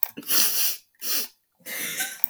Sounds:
Sniff